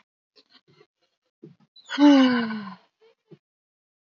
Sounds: Sigh